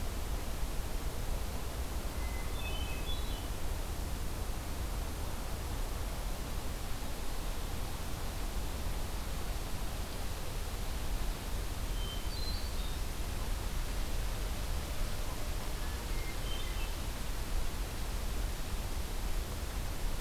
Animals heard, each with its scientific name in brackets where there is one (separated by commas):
Hermit Thrush (Catharus guttatus)